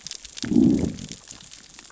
{"label": "biophony, growl", "recorder": "SoundTrap 600 or HydroMoth"}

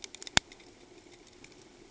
{"label": "ambient", "recorder": "HydroMoth"}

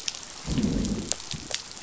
{"label": "biophony, growl", "recorder": "SoundTrap 500"}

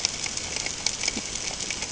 {"label": "ambient", "recorder": "HydroMoth"}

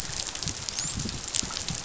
{"label": "biophony, dolphin", "recorder": "SoundTrap 500"}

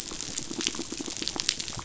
{"label": "biophony", "recorder": "SoundTrap 500"}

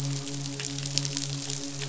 {"label": "biophony, midshipman", "recorder": "SoundTrap 500"}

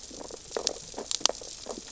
{"label": "biophony, sea urchins (Echinidae)", "recorder": "SoundTrap 600 or HydroMoth"}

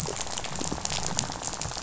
{"label": "biophony, rattle", "recorder": "SoundTrap 500"}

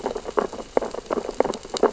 {"label": "biophony, sea urchins (Echinidae)", "recorder": "SoundTrap 600 or HydroMoth"}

